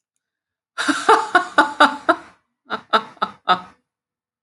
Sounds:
Laughter